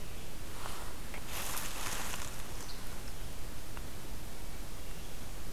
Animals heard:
forest ambience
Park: Katahdin Woods and Waters National Monument